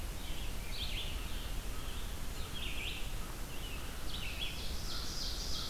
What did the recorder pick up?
Red-eyed Vireo, Scarlet Tanager, American Crow, Ovenbird